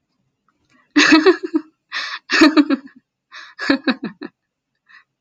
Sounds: Laughter